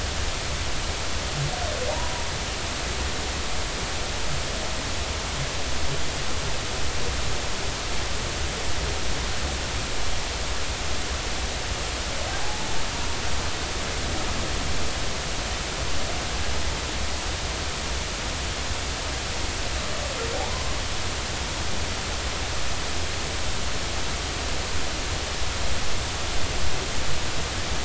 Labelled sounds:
12.4	12.7	humpback whale, 0.80 to 0.96 kHz

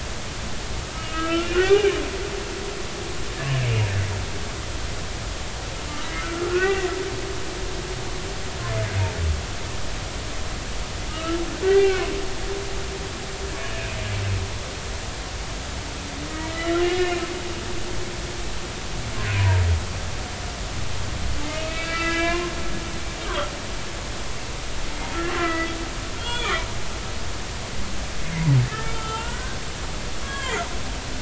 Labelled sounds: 0.9	1.9	humpback whale, 0.80 to 3.1 kHz
6.1	6.9	humpback whale, 1.1 to 2.8 kHz
11.1	11.4	humpback whale, 2.8 to 3.0 kHz
11.6	12.4	humpback whale, 1.2 to 3.2 kHz
16.3	17.2	humpback whale, 1.3 to 2.9 kHz
19.3	19.6	humpback whale, 0.90 to 1.0 kHz
21.5	22.5	humpback whale, 0.96 to 2.8 kHz
25.4	25.7	humpback whale, 1.2 to 2.1 kHz
26.2	26.6	humpback whale, 1.4 to 3.5 kHz
28.9	29.6	humpback whale, 1.3 to 3.2 kHz
30.2	30.7	humpback whale, 0.96 to 3.4 kHz

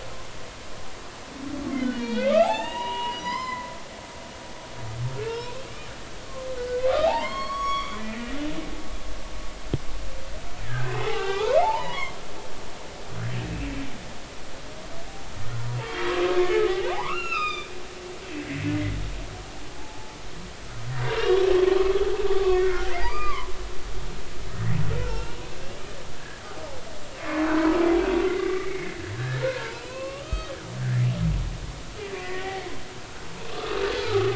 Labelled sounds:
1.7	3.7	humpback whale, 0.80 to 7.6 kHz
5.2	5.7	humpback whale, 2.4 to 4.1 kHz
6.6	8.3	humpback whale, 0.80 to 7.9 kHz
10.6	12.2	humpback whale, 0.80 to 3.6 kHz
16.6	17.7	humpback whale, 0.80 to 5.5 kHz
19.8	20.2	humpback whale, 0.80 to 0.96 kHz
21.1	21.4	humpback whale, 2.7 to 3.0 kHz
22.3	23.5	humpback whale, 0.93 to 2.6 kHz
24.5	25.4	humpback whale, 0.83 to 2.9 kHz
27.2	27.8	humpback whale, 0.93 to 2.2 kHz
28.3	30.5	humpback whale, 0.86 to 3.2 kHz
32.1	34.3	humpback whale, 0.80 to 2.0 kHz

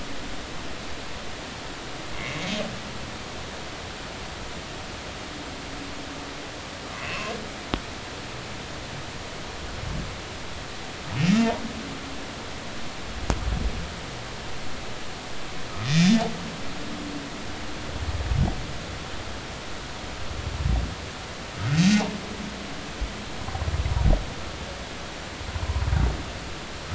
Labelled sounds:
2.1	2.4	humpback whale, 2.0 to 2.3 kHz
7.0	7.3	humpback whale, 0.99 to 2.8 kHz
15.9	16.2	humpback whale, 5.2 to 5.4 kHz
21.7	22.0	humpback whale, 2.5 to 6.6 kHz

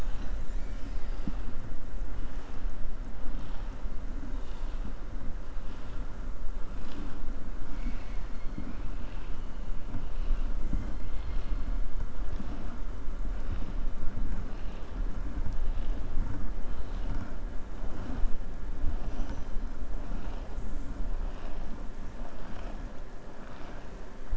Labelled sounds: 7.6	8.4	killer whale, southern resident, 1.7 to 6.8 kHz
11.0	11.6	killer whale, southern resident, 2.1 to 4.4 kHz

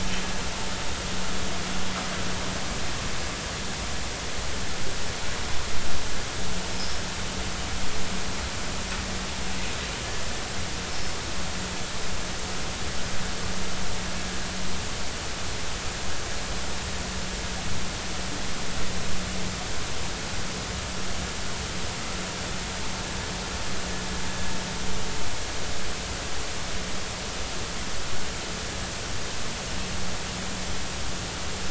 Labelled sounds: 10.9	11.2	metallic sound likely from a chain, 5.1 to 5.4 kHz

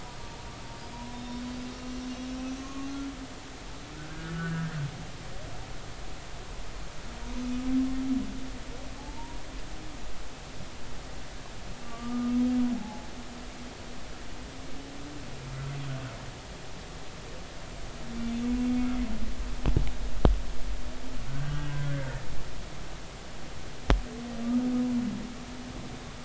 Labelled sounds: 1.1	2.9	humpback whale, 1.0 to 6.2 kHz
3.9	4.7	humpback whale, 1.3 to 1.9 kHz
9.0	9.4	humpback whale, 0.80 to 1.0 kHz
11.8	12.4	humpback whale, 1.1 to 1.3 kHz
12.7	13.1	humpback whale, 0.80 to 0.93 kHz
21.3	22.1	humpback whale, 1.5 to 3.0 kHz
24.4	24.7	humpback whale, 1.2 to 1.3 kHz

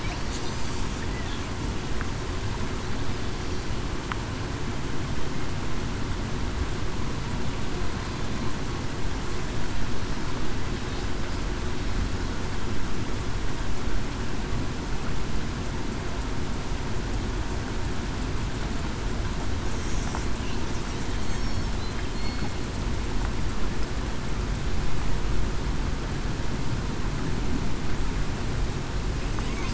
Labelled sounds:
22.1	22.5	killer whale, southern resident, 4.2 to 4.4 kHz

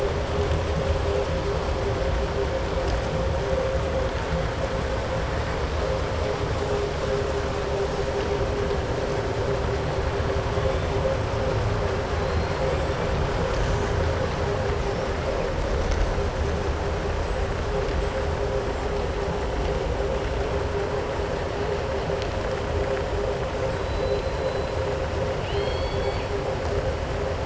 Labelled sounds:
12.2	12.6	killer whale, southern resident, 4.0 to 4.4 kHz
23.6	24.1	killer whale, southern resident, 7.6 to 8.0 kHz
25.3	26.3	killer whale, southern resident, 2.1 to 4.6 kHz

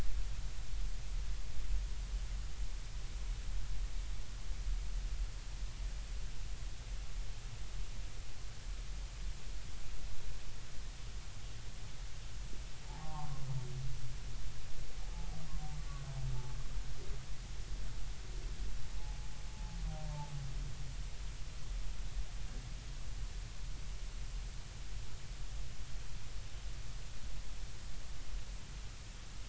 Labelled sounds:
12.9	13.4	humpback whale, 0.80 to 1.2 kHz
15.0	15.3	humpback whale, 0.80 to 0.90 kHz
19.0	19.3	humpback whale, 0.80 to 0.90 kHz
20.0	20.3	humpback whale, 0.80 to 0.93 kHz

